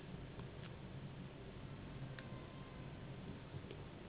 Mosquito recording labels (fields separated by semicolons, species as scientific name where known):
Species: Anopheles gambiae s.s.; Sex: female; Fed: unfed; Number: one; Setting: insect culture